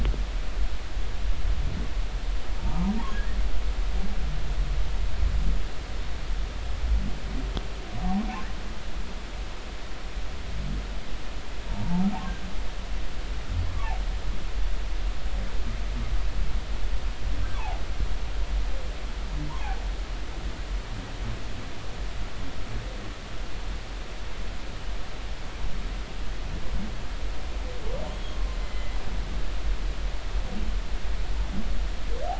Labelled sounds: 2.6	2.9	humpback whale, 0.80 to 1.1 kHz
9.0	9.3	humpback whale, 0.80 to 1.1 kHz
11.7	12.0	humpback whale, 0.83 to 0.99 kHz
17.6	17.8	humpback whale, 0.80 to 1.2 kHz
28.1	29.0	humpback whale, 2.0 to 3.4 kHz

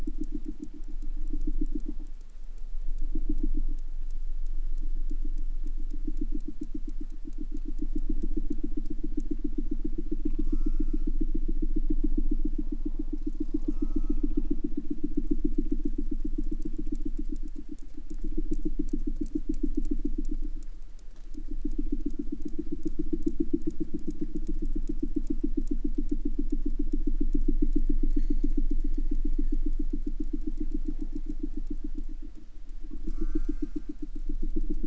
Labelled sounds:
10.1	11.2	killer whale, southern resident, J pod, call S04, 0.59 to 8.0 kHz
13.2	14.6	killer whale, southern resident, J pod, call S04, 0.55 to 8.0 kHz
32.9	34.0	killer whale, southern resident, J pod, call S04, 0.57 to 8.0 kHz

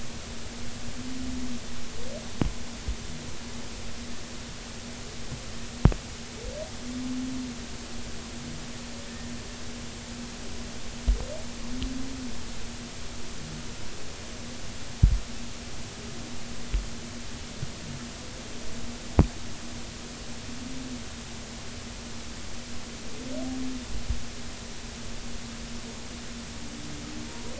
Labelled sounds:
27.3	27.5	humpback whale, 0.90 to 0.99 kHz

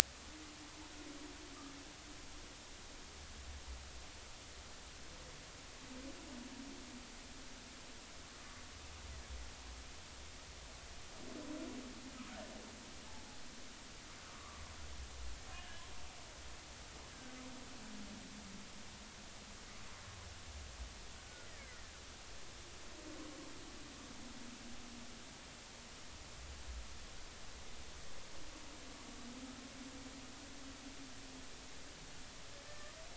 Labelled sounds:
14.2	14.6	humpback whale, 1.0 to 1.5 kHz
15.5	15.9	humpback whale, 1.6 to 3.1 kHz
21.5	21.8	killer whale, Bigg's (transient), 1.3 to 2.3 kHz
32.7	32.9	humpback whale, 1.7 to 1.8 kHz

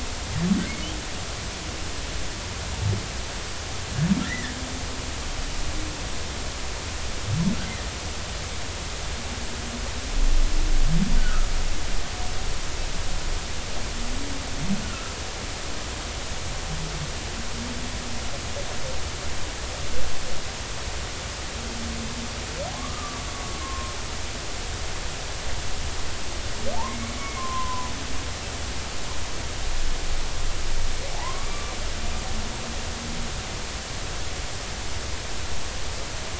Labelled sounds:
4.2	4.5	humpback whale, 1.7 to 2.1 kHz
11.2	11.5	humpback whale, 1.2 to 1.6 kHz
22.7	23.2	humpback whale, 0.96 to 1.3 kHz
23.6	24.0	humpback whale, 1.0 to 1.1 kHz
26.9	27.9	humpback whale, 0.96 to 2.3 kHz
31.1	31.7	humpback whale, 0.80 to 1.2 kHz

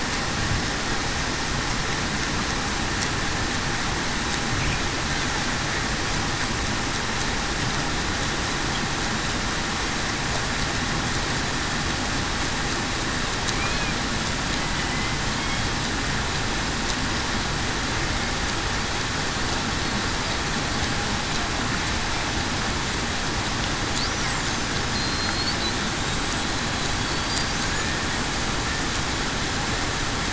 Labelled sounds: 13.5	13.9	killer whale, Bigg's (transient), 2.3 to 2.6 kHz
14.8	15.2	killer whale, Bigg's (transient), 2.0 to 2.1 kHz
24.9	25.5	killer whale, Bigg's (transient), 4.1 to 4.5 kHz
27.1	27.4	killer whale, Bigg's (transient), 4.4 to 4.8 kHz

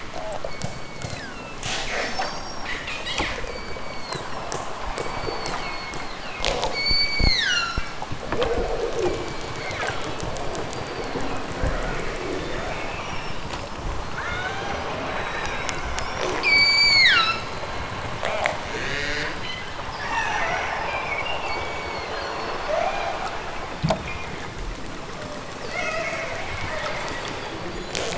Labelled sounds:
0.4	1.6	killer whale, southern Alaska resident, 1.1 to 4.8 kHz
3.5	4.5	killer whale, southern Alaska resident, 1.2 to 7.3 kHz
4.9	6.4	killer whale, southern Alaska resident, 1.0 to 7.0 kHz
6.7	7.8	killer whale, southern Alaska resident, 0.92 to 8.0 kHz
9.0	10.1	killer whale, southern Alaska resident, 0.92 to 8.0 kHz
10.6	11.5	killer whale, southern Alaska resident, 1.9 to 5.0 kHz
12.0	12.8	killer whale, southern Alaska resident, 2.6 to 7.1 kHz
16.4	17.5	killer whale, southern Alaska resident, 0.92 to 8.0 kHz
18.6	19.6	killer whale, southern Alaska resident, 0.18 to 8.0 kHz
21.4	22.4	killer whale, southern Alaska resident, 1.1 to 6.9 kHz
22.7	23.2	killer whale, southern Alaska resident, 0.41 to 2.7 kHz
23.9	24.5	killer whale, southern Alaska resident, 1.1 to 5.5 kHz

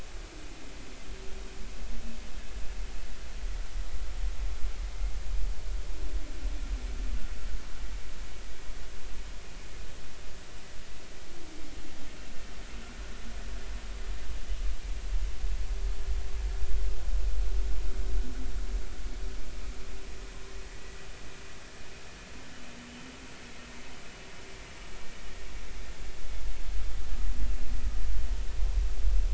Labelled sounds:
20.6	21.0	vessel noise, 1.9 to 2.0 kHz

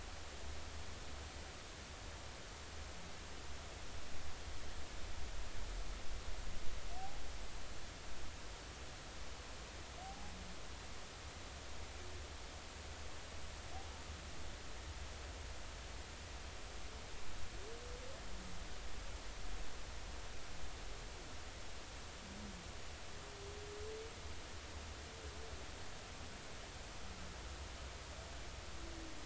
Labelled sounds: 10.0	10.3	humpback whale, 0.80 to 0.86 kHz

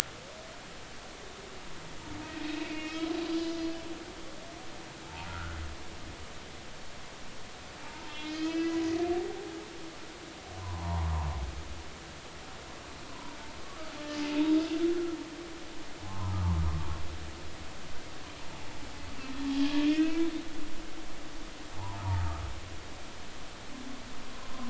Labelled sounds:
2.4	3.8	humpback whale, 2.1 to 5.1 kHz
5.0	5.6	humpback whale, 0.80 to 1.6 kHz
7.8	8.8	humpback whale, 0.80 to 5.1 kHz
10.6	11.1	humpback whale, 0.80 to 1.2 kHz
13.1	13.4	humpback whale, 0.93 to 1.1 kHz
16.0	16.6	humpback whale, 0.80 to 1.3 kHz
19.9	20.2	humpback whale, 2.4 to 2.7 kHz
21.7	22.4	humpback whale, 0.83 to 1.4 kHz

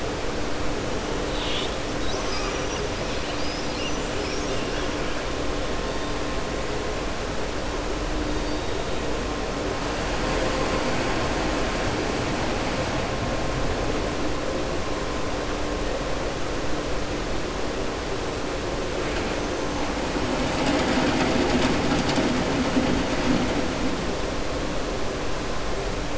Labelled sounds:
1.2	1.8	killer whale, southern resident, 2.2 to 4.6 kHz

